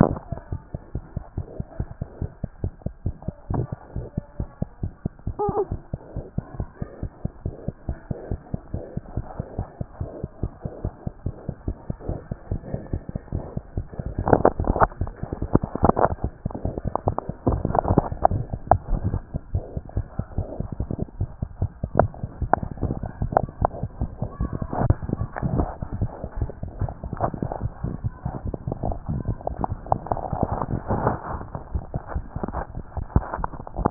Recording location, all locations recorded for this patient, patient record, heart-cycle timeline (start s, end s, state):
mitral valve (MV)
aortic valve (AV)+mitral valve (MV)
#Age: Infant
#Sex: Male
#Height: 71.0 cm
#Weight: 9.7 kg
#Pregnancy status: False
#Murmur: Absent
#Murmur locations: nan
#Most audible location: nan
#Systolic murmur timing: nan
#Systolic murmur shape: nan
#Systolic murmur grading: nan
#Systolic murmur pitch: nan
#Systolic murmur quality: nan
#Diastolic murmur timing: nan
#Diastolic murmur shape: nan
#Diastolic murmur grading: nan
#Diastolic murmur pitch: nan
#Diastolic murmur quality: nan
#Outcome: Normal
#Campaign: 2014 screening campaign
0.00	0.41	unannotated
0.41	0.52	diastole
0.52	0.60	S1
0.60	0.74	systole
0.74	0.80	S2
0.80	0.96	diastole
0.96	1.04	S1
1.04	1.16	systole
1.16	1.24	S2
1.24	1.38	diastole
1.38	1.46	S1
1.46	1.58	systole
1.58	1.66	S2
1.66	1.80	diastole
1.80	1.88	S1
1.88	2.00	systole
2.00	2.08	S2
2.08	2.22	diastole
2.22	2.30	S1
2.30	2.42	systole
2.42	2.48	S2
2.48	2.62	diastole
2.62	2.72	S1
2.72	2.86	systole
2.86	2.92	S2
2.92	3.06	diastole
3.06	3.14	S1
3.14	3.26	systole
3.26	3.32	S2
3.32	3.50	diastole
3.50	3.58	S1
3.58	3.72	systole
3.72	3.78	S2
3.78	3.96	diastole
3.96	4.06	S1
4.06	4.17	systole
4.17	4.23	S2
4.23	4.40	diastole
4.40	4.48	S1
4.48	4.62	systole
4.62	4.68	S2
4.68	4.82	diastole
4.82	4.92	S1
4.92	5.04	systole
5.04	5.12	S2
5.12	5.27	diastole
5.27	5.35	S1
5.35	5.49	systole
5.49	5.56	S2
5.56	5.70	diastole
5.70	5.78	S1
5.78	5.92	systole
5.92	5.99	S2
5.99	6.16	diastole
6.16	6.24	S1
6.24	6.38	systole
6.38	6.44	S2
6.44	6.58	diastole
6.58	6.68	S1
6.68	6.82	systole
6.82	6.88	S2
6.88	7.02	diastole
7.02	7.10	S1
7.10	7.24	systole
7.24	7.32	S2
7.32	7.46	diastole
7.46	7.54	S1
7.54	7.66	systole
7.66	7.74	S2
7.74	7.88	diastole
7.88	7.98	S1
7.98	8.10	systole
8.10	8.16	S2
8.16	8.30	diastole
8.30	8.40	S1
8.40	8.52	systole
8.52	8.60	S2
8.60	8.74	diastole
8.74	8.82	S1
8.82	8.96	systole
8.96	9.02	S2
9.02	9.16	diastole
9.16	9.26	S1
9.26	9.40	systole
9.40	9.45	S2
9.45	9.58	diastole
9.58	9.66	S1
9.66	9.80	systole
9.80	9.86	S2
9.86	10.00	diastole
10.00	10.08	S1
10.08	10.24	systole
10.24	10.30	S2
10.30	10.42	diastole
10.42	10.52	S1
10.52	10.65	systole
10.65	10.71	S2
10.71	10.84	diastole
10.84	10.92	S1
10.92	11.06	systole
11.06	11.12	S2
11.12	11.26	diastole
11.26	11.34	S1
11.34	11.48	systole
11.48	11.54	S2
11.54	11.68	diastole
11.68	11.76	S1
11.76	11.88	systole
11.88	11.96	S2
11.96	12.08	diastole
12.08	12.18	S1
12.18	12.30	systole
12.30	12.36	S2
12.36	12.50	diastole
12.50	12.60	S1
12.60	12.72	systole
12.72	12.80	S2
12.80	12.92	diastole
12.92	33.90	unannotated